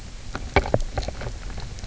{"label": "biophony, knock croak", "recorder": "SoundTrap 300"}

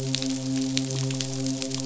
{"label": "biophony, midshipman", "recorder": "SoundTrap 500"}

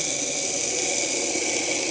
{"label": "anthrophony, boat engine", "recorder": "HydroMoth"}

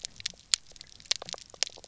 {"label": "biophony, pulse", "recorder": "SoundTrap 300"}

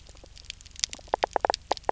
{"label": "biophony", "recorder": "SoundTrap 300"}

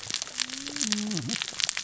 {"label": "biophony, cascading saw", "recorder": "SoundTrap 600 or HydroMoth"}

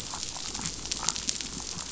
{"label": "biophony", "recorder": "SoundTrap 500"}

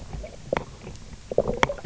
{"label": "biophony, knock croak", "recorder": "SoundTrap 300"}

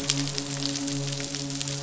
{"label": "biophony, midshipman", "recorder": "SoundTrap 500"}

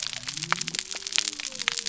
{"label": "biophony", "recorder": "SoundTrap 300"}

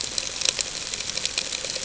{"label": "ambient", "recorder": "HydroMoth"}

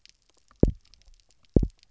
{"label": "biophony, double pulse", "recorder": "SoundTrap 300"}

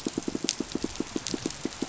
{"label": "biophony, pulse", "recorder": "SoundTrap 500"}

